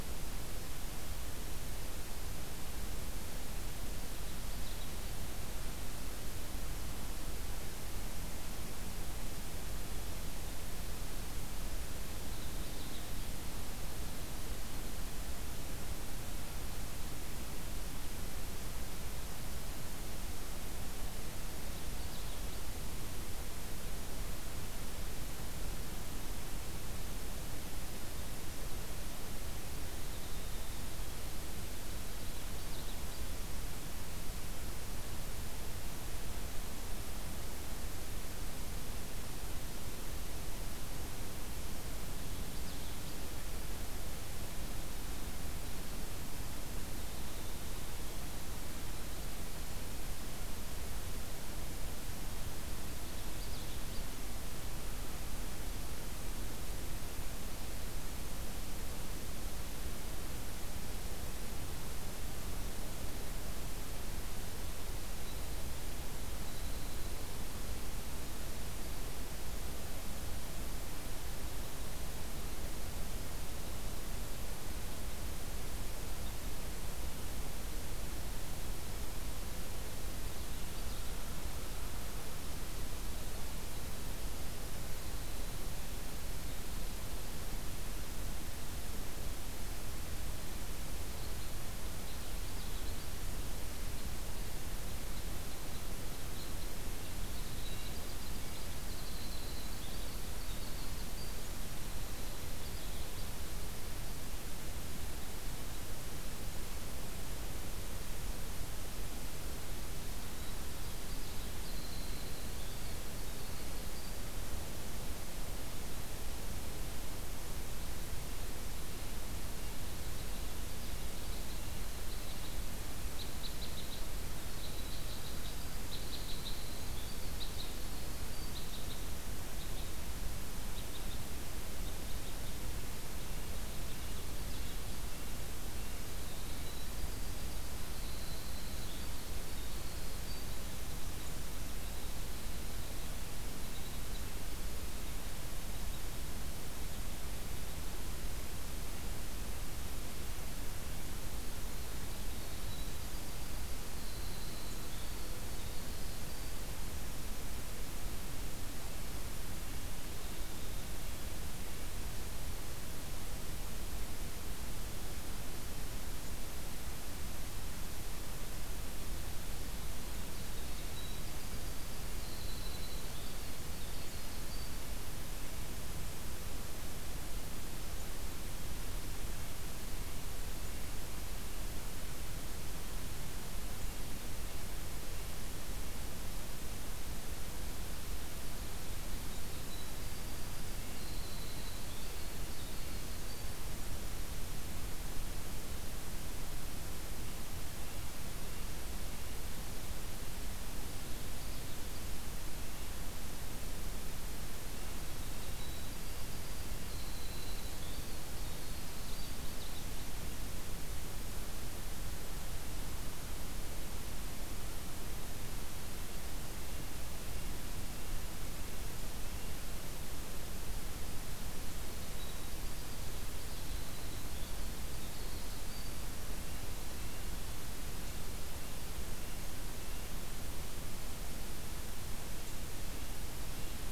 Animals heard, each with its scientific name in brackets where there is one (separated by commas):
Winter Wren (Troglodytes hiemalis), Common Yellowthroat (Geothlypis trichas), Red Crossbill (Loxia curvirostra), Red-breasted Nuthatch (Sitta canadensis)